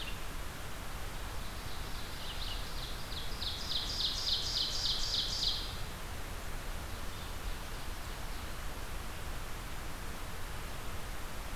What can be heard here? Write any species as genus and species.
Vireo olivaceus, Seiurus aurocapilla